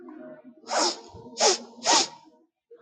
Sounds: Sniff